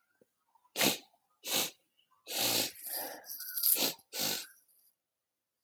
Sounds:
Sniff